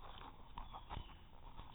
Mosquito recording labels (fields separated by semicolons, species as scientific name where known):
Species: no mosquito; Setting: cup